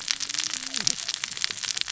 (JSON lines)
{"label": "biophony, cascading saw", "recorder": "SoundTrap 600 or HydroMoth"}